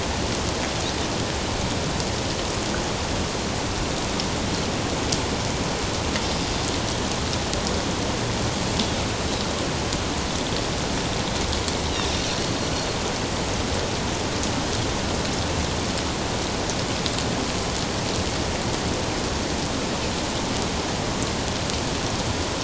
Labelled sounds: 12.2	12.5	Pacific white-sided dolphin, 4.1 to 4.4 kHz

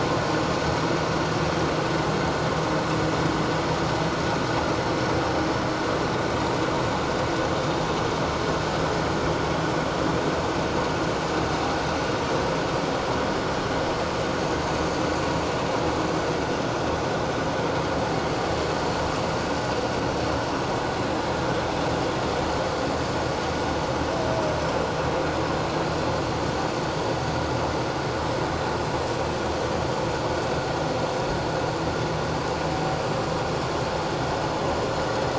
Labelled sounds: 22.0	22.3	vessel noise, 6.9 to 7.2 kHz

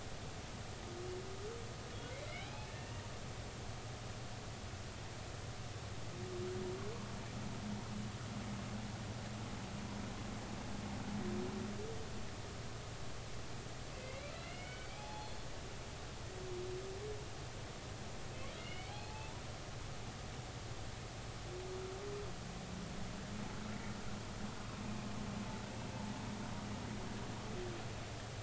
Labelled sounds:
2.2	3.1	humpback whale, 0.80 to 2.9 kHz
14.0	15.4	humpback whale, 0.80 to 3.5 kHz
18.6	19.3	humpback whale, 0.80 to 3.0 kHz

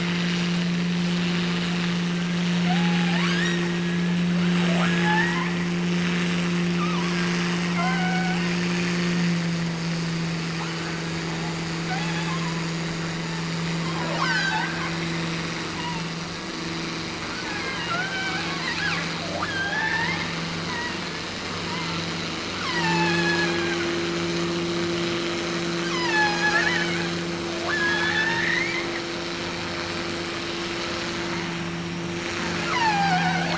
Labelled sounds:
2.6	4.2	killer whale, offshore, 0.52 to 8.0 kHz
4.6	5.5	killer whale, offshore, 0.41 to 6.8 kHz
6.7	8.5	killer whale, offshore, 0.57 to 3.1 kHz
10.6	11.1	killer whale, offshore, 0.70 to 3.1 kHz
11.8	12.7	killer whale, offshore, 0.61 to 3.6 kHz
13.9	15.0	killer whale, offshore, 0.45 to 7.4 kHz
15.7	16.2	killer whale, offshore, 0.70 to 3.1 kHz
17.4	21.1	killer whale, offshore, 0.43 to 5.7 kHz
21.5	22.0	killer whale, offshore, 0.75 to 2.2 kHz
22.6	23.9	killer whale, offshore, 0.61 to 8.0 kHz
25.8	27.1	killer whale, offshore, 0.64 to 7.3 kHz
27.4	28.8	killer whale, offshore, 0.48 to 5.7 kHz
32.5	33.5	killer whale, offshore, 0.55 to 6.0 kHz

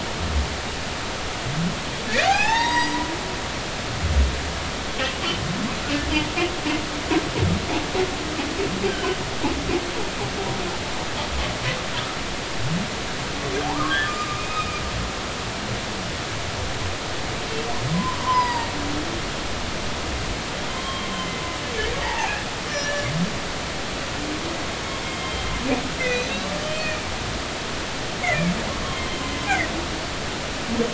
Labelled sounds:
2.2	3.0	humpback whale, 0.80 to 7.8 kHz
8.9	9.2	humpback whale, 1.5 to 3.2 kHz
13.6	14.8	humpback whale, 0.80 to 3.4 kHz
17.9	18.7	humpback whale, 0.86 to 5.1 kHz
20.7	21.1	humpback whale, 0.99 to 3.3 kHz
22.0	22.4	humpback whale, 0.80 to 2.8 kHz
22.7	23.1	humpback whale, 1.6 to 6.0 kHz
25.0	25.5	humpback whale, 2.1 to 3.2 kHz
26.0	27.0	humpback whale, 1.9 to 3.2 kHz
28.7	29.0	humpback whale, 0.99 to 1.2 kHz

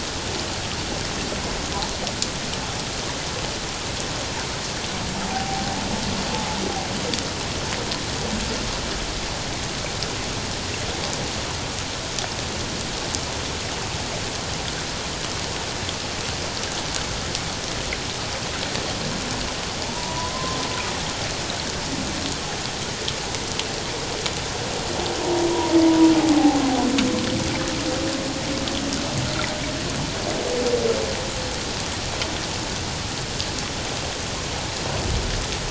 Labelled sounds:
5.2	5.6	humpback whale, 0.78 to 0.91 kHz
19.9	20.6	humpback whale, 0.84 to 1.1 kHz

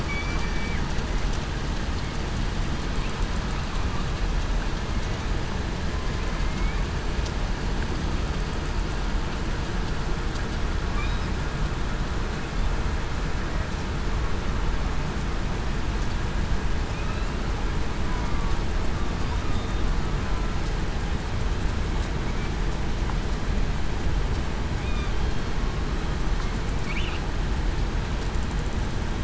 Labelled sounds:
6.4	6.8	killer whale, southern resident, 2.1 to 2.4 kHz
19.5	19.8	killer whale, southern resident, 3.6 to 3.7 kHz

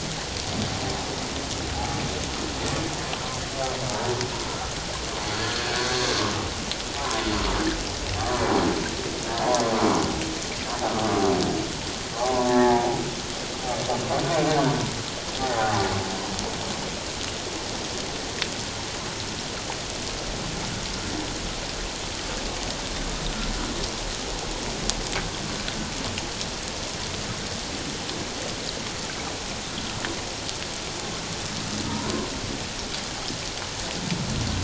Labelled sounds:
1.7	2.0	humpback whale, 0.78 to 0.88 kHz
3.9	4.1	humpback whale, 0.81 to 1.0 kHz
5.4	5.7	humpback whale, 1.6 to 1.8 kHz
12.1	12.9	humpback whale, 0.78 to 1.9 kHz
14.4	15.8	humpback whale, 0.78 to 1.6 kHz
31.9	32.3	humpback whale, 0.88 to 1.1 kHz

